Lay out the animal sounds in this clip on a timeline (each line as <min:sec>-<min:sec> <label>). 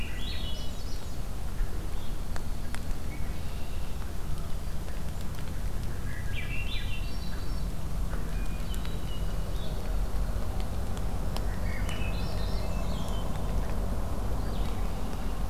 0:00.0-0:01.3 Swainson's Thrush (Catharus ustulatus)
0:00.0-0:02.1 Blue-headed Vireo (Vireo solitarius)
0:02.1-0:03.1 Yellow-rumped Warbler (Setophaga coronata)
0:03.0-0:04.0 Red-winged Blackbird (Agelaius phoeniceus)
0:05.7-0:07.7 Swainson's Thrush (Catharus ustulatus)
0:08.3-0:09.5 Hermit Thrush (Catharus guttatus)
0:09.4-0:14.9 Blue-headed Vireo (Vireo solitarius)
0:11.1-0:12.0 Black-throated Green Warbler (Setophaga virens)
0:11.4-0:13.3 Swainson's Thrush (Catharus ustulatus)
0:14.4-0:15.5 Red-winged Blackbird (Agelaius phoeniceus)